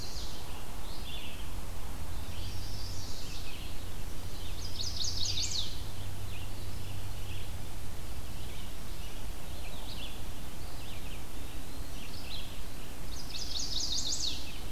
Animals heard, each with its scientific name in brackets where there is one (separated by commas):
Eastern Wood-Pewee (Contopus virens), Red-eyed Vireo (Vireo olivaceus), Chestnut-sided Warbler (Setophaga pensylvanica)